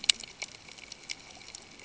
{"label": "ambient", "recorder": "HydroMoth"}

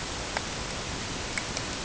{"label": "ambient", "recorder": "HydroMoth"}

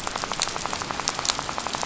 {"label": "biophony, rattle", "recorder": "SoundTrap 500"}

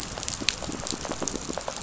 {"label": "biophony, pulse", "recorder": "SoundTrap 500"}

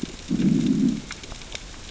{"label": "biophony, growl", "recorder": "SoundTrap 600 or HydroMoth"}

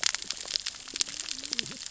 {"label": "biophony, cascading saw", "recorder": "SoundTrap 600 or HydroMoth"}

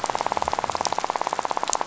{"label": "biophony, rattle", "recorder": "SoundTrap 500"}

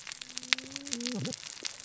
{"label": "biophony, cascading saw", "recorder": "SoundTrap 600 or HydroMoth"}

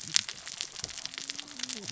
{"label": "biophony, cascading saw", "recorder": "SoundTrap 600 or HydroMoth"}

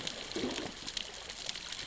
{"label": "biophony, growl", "recorder": "SoundTrap 600 or HydroMoth"}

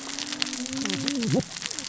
{"label": "biophony, cascading saw", "recorder": "SoundTrap 600 or HydroMoth"}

